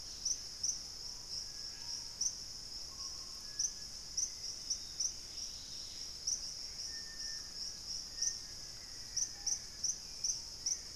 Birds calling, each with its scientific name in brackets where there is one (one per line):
Dusky-capped Greenlet (Pachysylvia hypoxantha)
unidentified bird
Gray Antbird (Cercomacra cinerascens)
Screaming Piha (Lipaugus vociferans)
Black-faced Antthrush (Formicarius analis)
Hauxwell's Thrush (Turdus hauxwelli)